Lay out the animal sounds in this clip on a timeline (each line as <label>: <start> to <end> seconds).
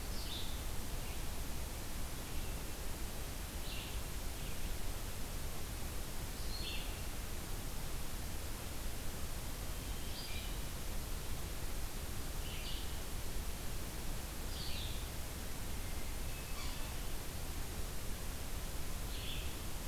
Red-eyed Vireo (Vireo olivaceus): 0.0 to 19.9 seconds
Hermit Thrush (Catharus guttatus): 15.6 to 17.1 seconds
Yellow-bellied Sapsucker (Sphyrapicus varius): 16.4 to 16.8 seconds